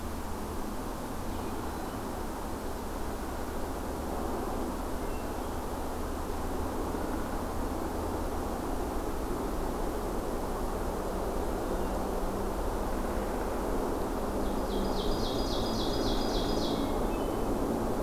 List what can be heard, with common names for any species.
Hermit Thrush, Ovenbird